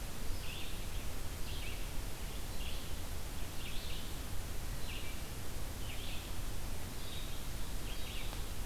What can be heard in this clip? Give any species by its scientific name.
Vireo olivaceus